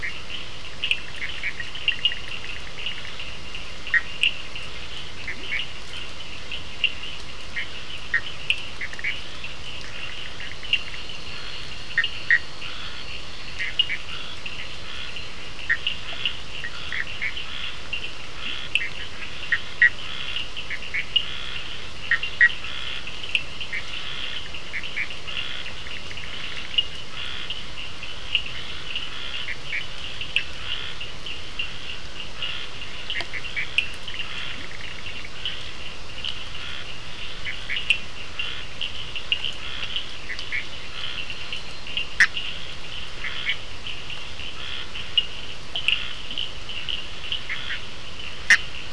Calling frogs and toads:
Bischoff's tree frog, Cochran's lime tree frog, Leptodactylus latrans, Scinax perereca, two-colored oval frog
Atlantic Forest, Brazil, 9:45pm

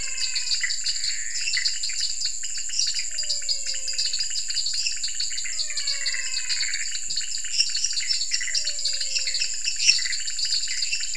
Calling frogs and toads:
menwig frog, Pithecopus azureus, dwarf tree frog, pointedbelly frog, lesser tree frog
Cerrado, Brazil, 9:00pm

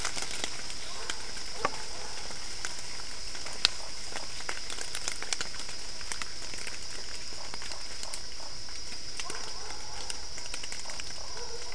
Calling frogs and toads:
none
Cerrado, Brazil, 9:30pm

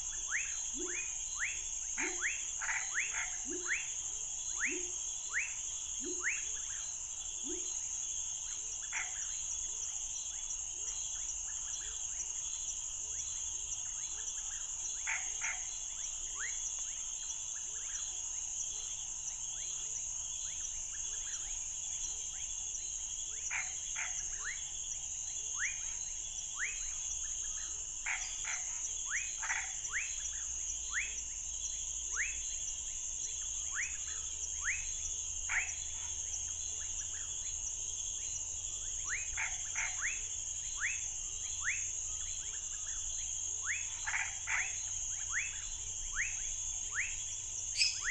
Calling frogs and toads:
rufous frog, pepper frog, Chaco tree frog, lesser tree frog
Cerrado, Brazil, 9:00pm

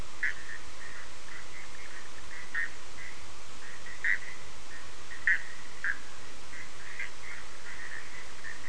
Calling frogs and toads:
Bischoff's tree frog
Atlantic Forest, Brazil, 12:30am

